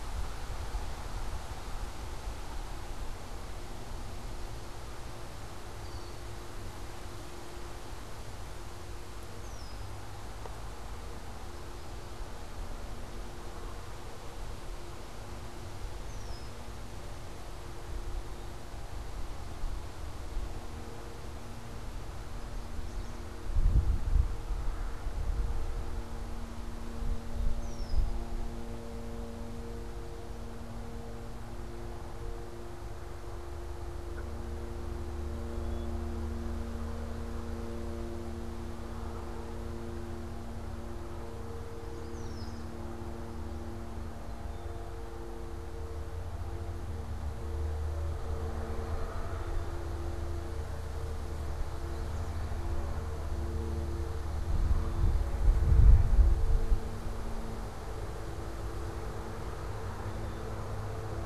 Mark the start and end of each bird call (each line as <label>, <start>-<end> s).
Red-winged Blackbird (Agelaius phoeniceus), 5.6-6.3 s
Red-winged Blackbird (Agelaius phoeniceus), 9.2-10.1 s
Red-winged Blackbird (Agelaius phoeniceus), 15.9-16.8 s
Yellow Warbler (Setophaga petechia), 22.3-23.5 s
Red-winged Blackbird (Agelaius phoeniceus), 27.3-28.4 s
Yellow Warbler (Setophaga petechia), 41.5-42.9 s
Red-winged Blackbird (Agelaius phoeniceus), 41.9-42.7 s